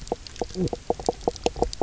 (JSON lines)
{"label": "biophony, knock croak", "recorder": "SoundTrap 300"}